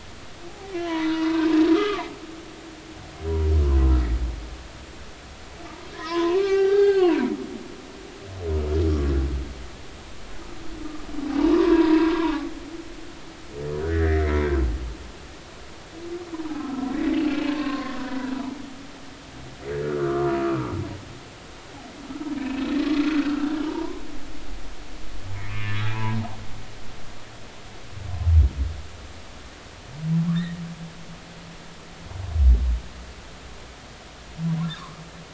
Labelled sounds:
0.5	1.4	humpback whale, 0.80 to 2.1 kHz
1.7	2.1	humpback whale, 0.80 to 3.5 kHz
5.9	7.3	humpback whale, 0.80 to 4.6 kHz
11.3	12.5	humpback whale, 0.80 to 2.9 kHz
13.9	14.2	humpback whale, 1.5 to 2.1 kHz
16.4	18.3	humpback whale, 0.80 to 1.2 kHz
19.8	20.4	humpback whale, 1.0 to 1.5 kHz
22.4	24.0	humpback whale, 0.86 to 2.7 kHz
25.5	26.2	humpback whale, 0.80 to 3.5 kHz

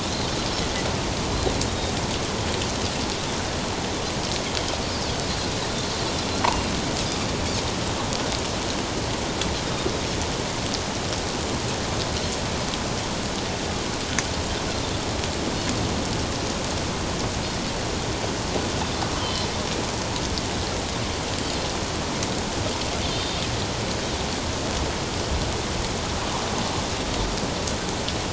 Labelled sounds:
1.7	1.9	Pacific white-sided dolphin, 3.6 to 3.8 kHz
19.2	19.4	Pacific white-sided dolphin, 3.0 to 3.3 kHz
23.0	23.4	Pacific white-sided dolphin, 3.0 to 4.8 kHz

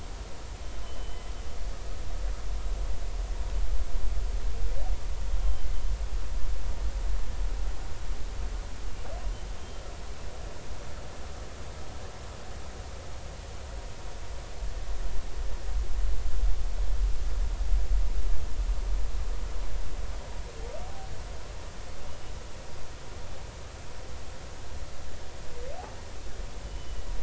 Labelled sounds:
0.8	1.2	humpback whale, 2.9 to 3.1 kHz
5.4	5.7	humpback whale, 3.0 to 3.3 kHz
9.6	9.8	humpback whale, 3.1 to 3.2 kHz
26.6	27.1	humpback whale, 2.9 to 3.1 kHz

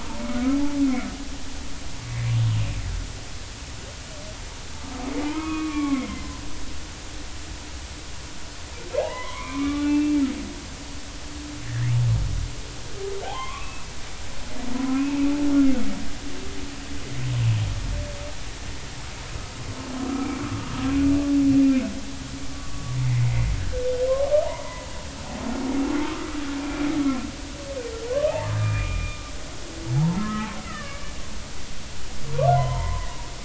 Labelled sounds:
5.2	6.3	humpback whale, 0.86 to 2.6 kHz
9.0	10.2	humpback whale, 0.80 to 3.8 kHz
11.6	11.9	humpback whale, 1.6 to 2.0 kHz
13.2	13.8	humpback whale, 0.80 to 3.4 kHz
14.9	15.3	humpback whale, 2.4 to 2.7 kHz
22.5	23.0	humpback whale, 1.1 to 1.2 kHz
23.6	23.8	humpback whale, 1.5 to 1.7 kHz
24.4	24.9	humpback whale, 0.86 to 2.0 kHz
26.0	26.9	humpback whale, 1.0 to 2.5 kHz
28.1	29.3	humpback whale, 0.99 to 2.5 kHz
29.9	31.1	humpback whale, 0.80 to 2.4 kHz
32.5	33.1	humpback whale, 0.86 to 3.2 kHz

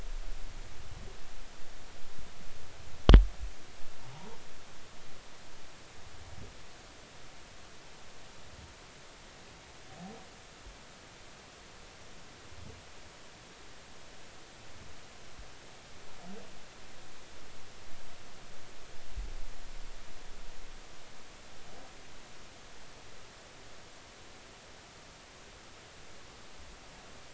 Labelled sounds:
4.1	4.4	humpback whale, 0.80 to 1.0 kHz

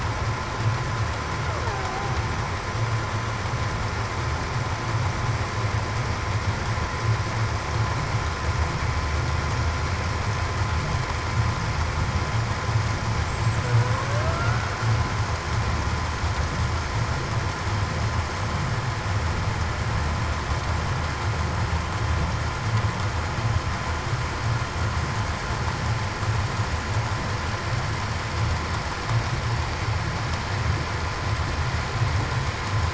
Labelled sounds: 1.7	2.1	killer whale, Bigg's (transient), 0.68 to 0.82 kHz
14.0	14.4	killer whale, Bigg's (transient), 0.54 to 0.68 kHz

